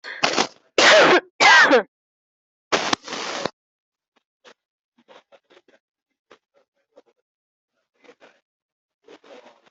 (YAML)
expert_labels:
- quality: ok
  cough_type: dry
  dyspnea: false
  wheezing: false
  stridor: false
  choking: false
  congestion: false
  nothing: true
  diagnosis: COVID-19
  severity: mild
age: 24
gender: male
respiratory_condition: true
fever_muscle_pain: true
status: symptomatic